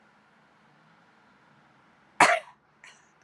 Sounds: Sneeze